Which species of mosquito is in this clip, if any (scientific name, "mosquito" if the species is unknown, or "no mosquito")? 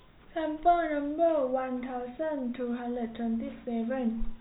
no mosquito